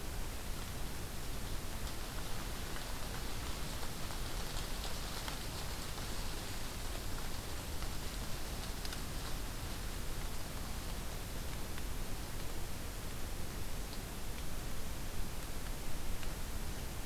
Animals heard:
forest ambience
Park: Hubbard Brook Experimental Forest